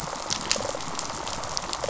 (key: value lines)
label: biophony, rattle response
recorder: SoundTrap 500